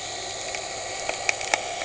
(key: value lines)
label: anthrophony, boat engine
recorder: HydroMoth